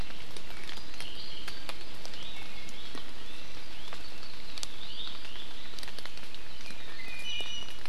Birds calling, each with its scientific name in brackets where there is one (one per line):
Iiwi (Drepanis coccinea)